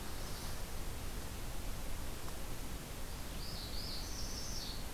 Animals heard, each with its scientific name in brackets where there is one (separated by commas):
Northern Parula (Setophaga americana), Magnolia Warbler (Setophaga magnolia)